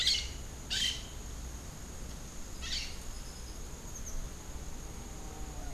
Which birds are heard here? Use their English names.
Crimson-fronted Parakeet